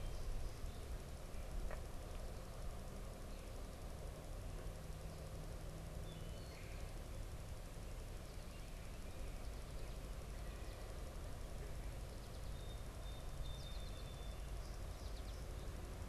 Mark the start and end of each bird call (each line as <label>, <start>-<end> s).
Wood Thrush (Hylocichla mustelina), 5.7-6.9 s
American Goldfinch (Spinus tristis), 8.4-16.0 s
Song Sparrow (Melospiza melodia), 12.5-14.9 s